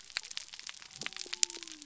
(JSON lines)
{"label": "biophony", "recorder": "SoundTrap 300"}